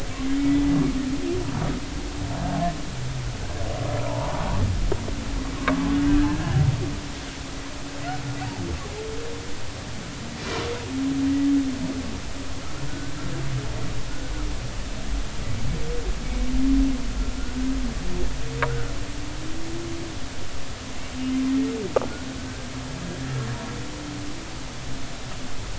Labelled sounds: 5.0	6.6	humpback whale, 0.83 to 1.8 kHz
12.9	13.1	humpback whale, 1.4 to 1.6 kHz

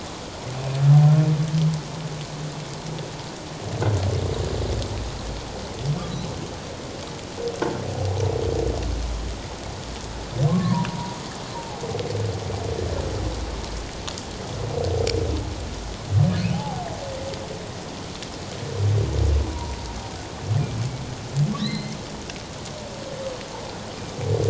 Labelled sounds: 10.5	11.8	humpback whale, 0.78 to 1.2 kHz
16.5	16.9	humpback whale, 0.78 to 0.97 kHz
19.5	19.9	humpback whale, 0.88 to 1.1 kHz
21.6	22.0	humpback whale, 1.8 to 4.2 kHz

